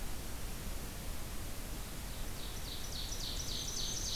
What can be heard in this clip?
Ovenbird, Black-throated Green Warbler